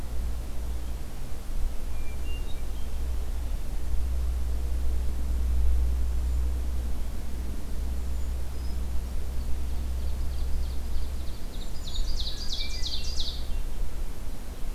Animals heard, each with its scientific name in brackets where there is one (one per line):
Ovenbird (Seiurus aurocapilla)
Hermit Thrush (Catharus guttatus)